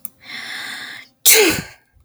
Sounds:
Sneeze